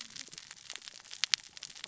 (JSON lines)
{"label": "biophony, cascading saw", "recorder": "SoundTrap 600 or HydroMoth"}